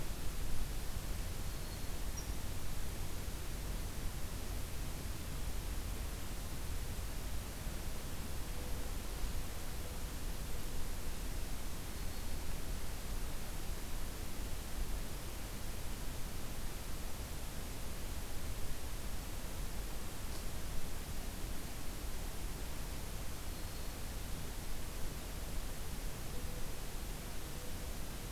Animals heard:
Black-throated Green Warbler (Setophaga virens), Mourning Dove (Zenaida macroura)

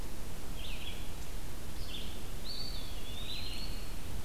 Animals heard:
Red-eyed Vireo (Vireo olivaceus), Eastern Wood-Pewee (Contopus virens)

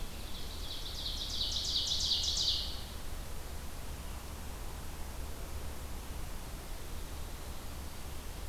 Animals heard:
Ovenbird (Seiurus aurocapilla)

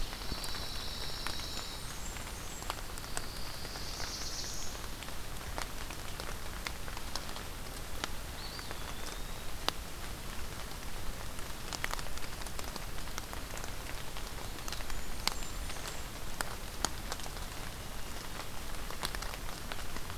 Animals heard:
Blackburnian Warbler (Setophaga fusca), Pine Warbler (Setophaga pinus), Black-throated Blue Warbler (Setophaga caerulescens), Eastern Wood-Pewee (Contopus virens)

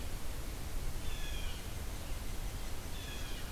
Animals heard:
Blue Jay (Cyanocitta cristata)

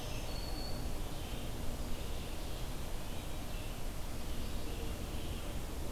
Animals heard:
Black-throated Green Warbler (Setophaga virens), Red-eyed Vireo (Vireo olivaceus)

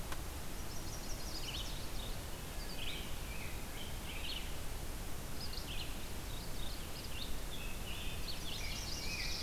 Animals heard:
Chestnut-sided Warbler (Setophaga pensylvanica), Rose-breasted Grosbeak (Pheucticus ludovicianus), Red-eyed Vireo (Vireo olivaceus), Wood Thrush (Hylocichla mustelina), Ovenbird (Seiurus aurocapilla)

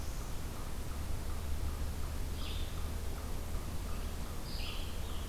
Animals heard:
American Robin (Turdus migratorius), Red-eyed Vireo (Vireo olivaceus), unknown mammal

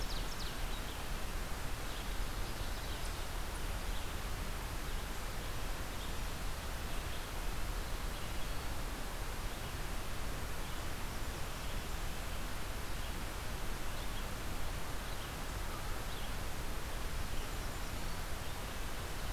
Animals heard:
Blackburnian Warbler (Setophaga fusca), Red-eyed Vireo (Vireo olivaceus), Ovenbird (Seiurus aurocapilla)

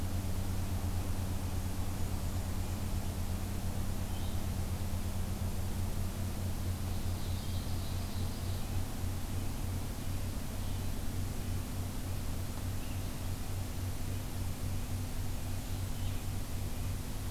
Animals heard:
Blackburnian Warbler (Setophaga fusca), Ovenbird (Seiurus aurocapilla), Blue-headed Vireo (Vireo solitarius)

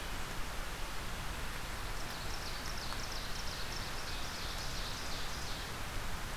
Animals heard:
Ovenbird (Seiurus aurocapilla)

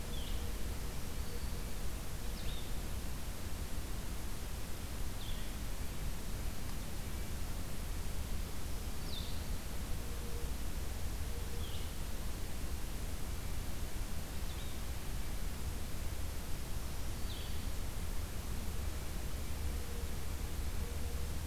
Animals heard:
Blue-headed Vireo (Vireo solitarius), Black-throated Green Warbler (Setophaga virens)

